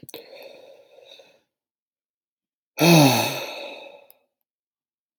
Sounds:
Sigh